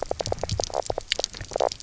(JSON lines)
{"label": "biophony, knock croak", "recorder": "SoundTrap 300"}